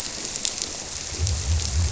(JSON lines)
{"label": "biophony", "recorder": "SoundTrap 300"}